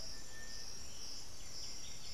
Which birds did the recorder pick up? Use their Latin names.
Tapera naevia, unidentified bird, Pachyramphus polychopterus, Saltator maximus